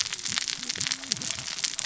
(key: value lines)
label: biophony, cascading saw
recorder: SoundTrap 600 or HydroMoth